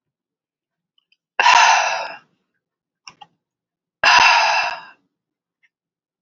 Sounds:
Sigh